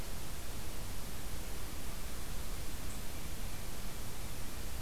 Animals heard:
forest ambience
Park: Acadia National Park